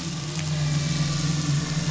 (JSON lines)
{"label": "anthrophony, boat engine", "recorder": "SoundTrap 500"}